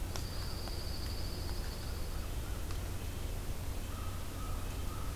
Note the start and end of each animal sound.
0.0s-2.3s: Dark-eyed Junco (Junco hyemalis)
1.7s-2.6s: American Crow (Corvus brachyrhynchos)
2.2s-5.1s: Red-breasted Nuthatch (Sitta canadensis)
3.8s-5.2s: American Crow (Corvus brachyrhynchos)

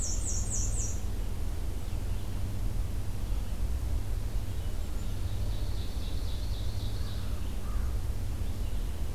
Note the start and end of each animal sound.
0.0s-1.1s: Black-and-white Warbler (Mniotilta varia)
0.0s-9.1s: Red-eyed Vireo (Vireo olivaceus)
5.2s-7.4s: Ovenbird (Seiurus aurocapilla)
6.9s-7.9s: American Crow (Corvus brachyrhynchos)

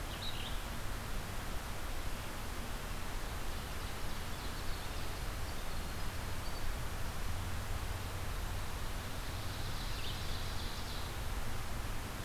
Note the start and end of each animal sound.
0.0s-10.4s: Red-eyed Vireo (Vireo olivaceus)
3.4s-7.2s: Winter Wren (Troglodytes hiemalis)
9.0s-11.4s: Ovenbird (Seiurus aurocapilla)

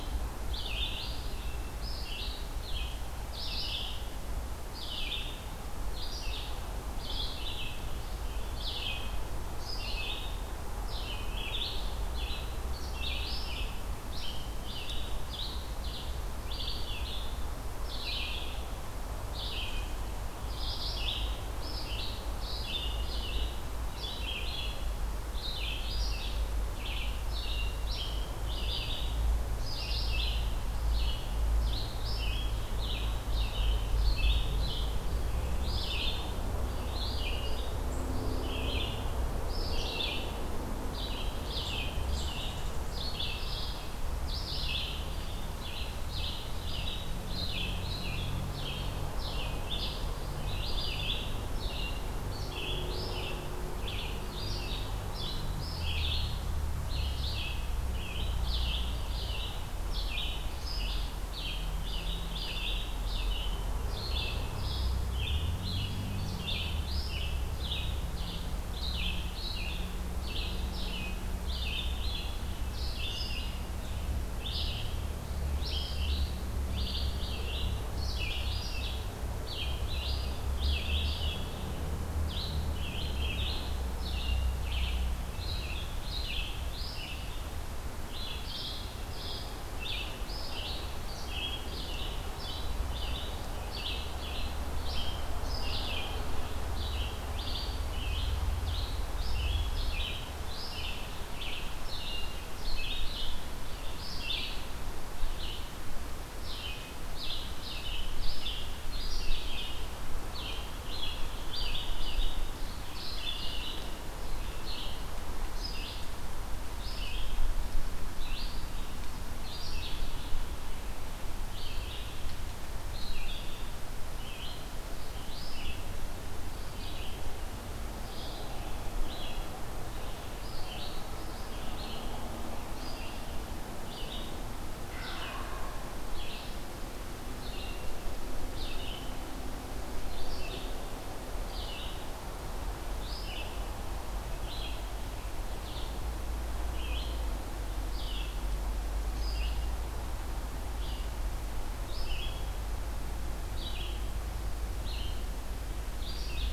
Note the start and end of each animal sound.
0.0s-147.3s: Red-eyed Vireo (Vireo olivaceus)
134.9s-135.8s: Wild Turkey (Meleagris gallopavo)
147.7s-156.5s: Red-eyed Vireo (Vireo olivaceus)

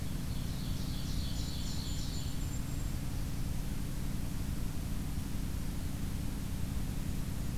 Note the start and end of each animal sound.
0.0s-2.4s: Ovenbird (Seiurus aurocapilla)
1.3s-3.0s: Golden-crowned Kinglet (Regulus satrapa)
2.2s-3.3s: Blackburnian Warbler (Setophaga fusca)

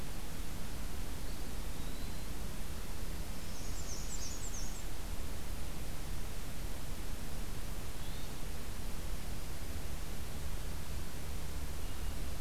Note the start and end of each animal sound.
1.1s-2.4s: Eastern Wood-Pewee (Contopus virens)
3.2s-4.9s: Black-and-white Warbler (Mniotilta varia)
7.9s-8.4s: Hermit Thrush (Catharus guttatus)

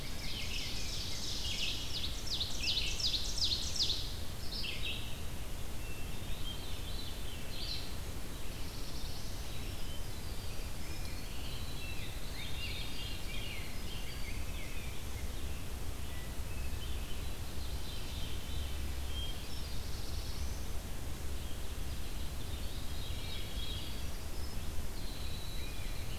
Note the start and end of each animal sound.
0.0s-1.4s: Rose-breasted Grosbeak (Pheucticus ludovicianus)
0.0s-4.1s: Ovenbird (Seiurus aurocapilla)
0.0s-26.2s: Red-eyed Vireo (Vireo olivaceus)
5.7s-6.8s: Hermit Thrush (Catharus guttatus)
5.8s-7.4s: Veery (Catharus fuscescens)
7.8s-9.6s: Black-throated Blue Warbler (Setophaga caerulescens)
9.4s-15.4s: Winter Wren (Troglodytes hiemalis)
10.3s-16.3s: Rose-breasted Grosbeak (Pheucticus ludovicianus)
12.3s-13.7s: Veery (Catharus fuscescens)
17.2s-18.8s: Veery (Catharus fuscescens)
18.9s-20.7s: Black-throated Blue Warbler (Setophaga caerulescens)
19.1s-20.1s: Hermit Thrush (Catharus guttatus)
22.1s-26.2s: Winter Wren (Troglodytes hiemalis)
22.7s-24.0s: Veery (Catharus fuscescens)
25.4s-26.2s: Rose-breasted Grosbeak (Pheucticus ludovicianus)

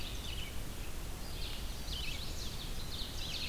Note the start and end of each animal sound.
0.0s-0.7s: Ovenbird (Seiurus aurocapilla)
0.0s-3.5s: Red-eyed Vireo (Vireo olivaceus)
1.5s-2.5s: Chestnut-sided Warbler (Setophaga pensylvanica)
2.6s-3.5s: Ovenbird (Seiurus aurocapilla)

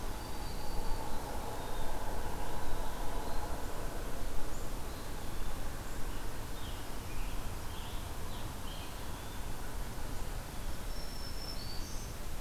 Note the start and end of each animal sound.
0.1s-1.4s: Black-throated Green Warbler (Setophaga virens)
6.3s-9.7s: Scarlet Tanager (Piranga olivacea)
10.7s-12.2s: Black-throated Green Warbler (Setophaga virens)

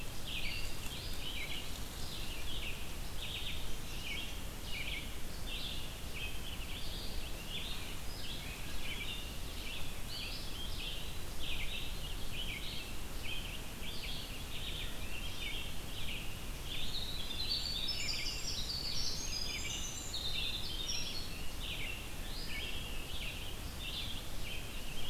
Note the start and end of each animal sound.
0.0s-25.1s: Red-eyed Vireo (Vireo olivaceus)
0.4s-1.7s: Eastern Wood-Pewee (Contopus virens)
9.9s-11.5s: Eastern Wood-Pewee (Contopus virens)
16.5s-21.7s: Winter Wren (Troglodytes hiemalis)
18.7s-20.3s: Eastern Wood-Pewee (Contopus virens)

